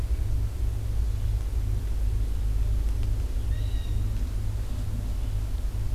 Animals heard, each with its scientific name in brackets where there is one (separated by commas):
Blue Jay (Cyanocitta cristata)